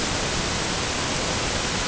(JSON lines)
{"label": "ambient", "recorder": "HydroMoth"}